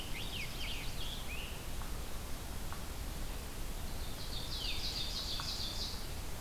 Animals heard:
Chestnut-sided Warbler (Setophaga pensylvanica)
Scarlet Tanager (Piranga olivacea)
Veery (Catharus fuscescens)
Ovenbird (Seiurus aurocapilla)

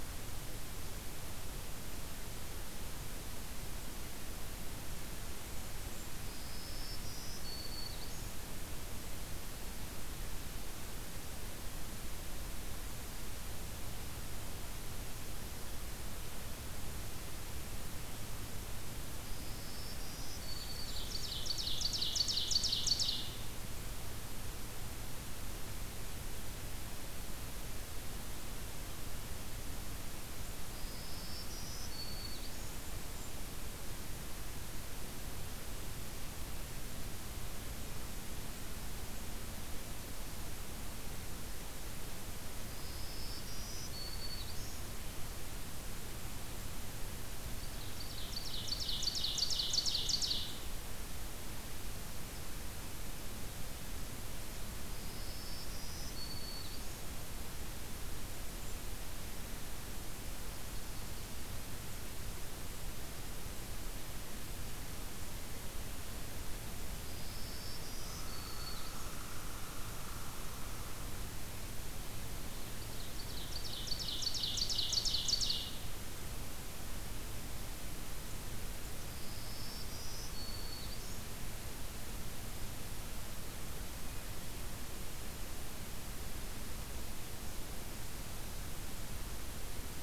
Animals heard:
Blackburnian Warbler (Setophaga fusca)
Red Squirrel (Tamiasciurus hudsonicus)
Ovenbird (Seiurus aurocapilla)
Black-throated Green Warbler (Setophaga virens)

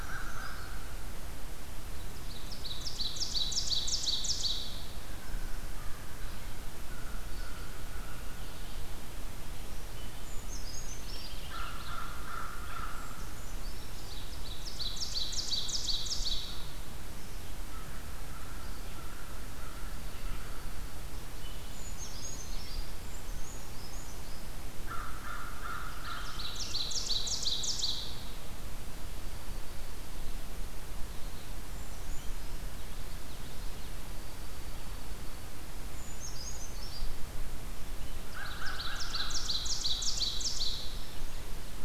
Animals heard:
American Crow (Corvus brachyrhynchos)
Purple Finch (Haemorhous purpureus)
Dark-eyed Junco (Junco hyemalis)
Ovenbird (Seiurus aurocapilla)
Common Yellowthroat (Geothlypis trichas)
Brown Creeper (Certhia americana)

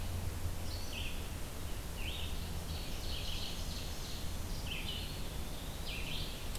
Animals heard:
Eastern Wood-Pewee (Contopus virens)
Red-eyed Vireo (Vireo olivaceus)
Ovenbird (Seiurus aurocapilla)

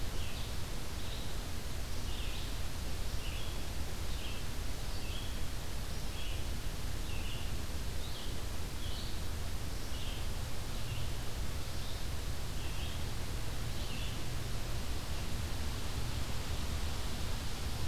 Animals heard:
Red-eyed Vireo (Vireo olivaceus)

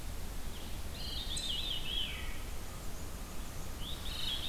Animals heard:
Veery (Catharus fuscescens)
Black-and-white Warbler (Mniotilta varia)

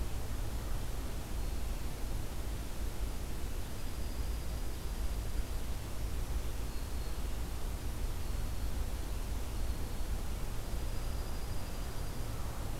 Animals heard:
Dark-eyed Junco (Junco hyemalis)

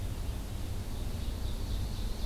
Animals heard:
Ovenbird (Seiurus aurocapilla)
Red-eyed Vireo (Vireo olivaceus)

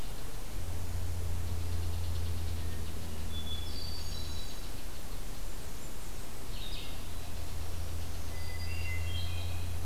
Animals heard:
unknown mammal
Red-eyed Vireo (Vireo olivaceus)
Blackburnian Warbler (Setophaga fusca)
Hermit Thrush (Catharus guttatus)

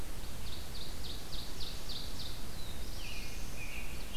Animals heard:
American Robin (Turdus migratorius)
Ovenbird (Seiurus aurocapilla)
Black-throated Blue Warbler (Setophaga caerulescens)

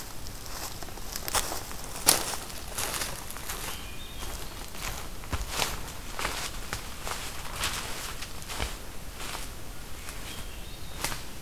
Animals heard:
Hermit Thrush (Catharus guttatus)

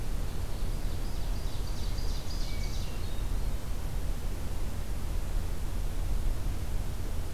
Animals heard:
Hermit Thrush (Catharus guttatus)
Ovenbird (Seiurus aurocapilla)

